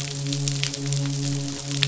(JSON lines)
{"label": "biophony, midshipman", "recorder": "SoundTrap 500"}